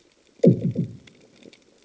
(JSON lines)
{"label": "anthrophony, bomb", "recorder": "HydroMoth"}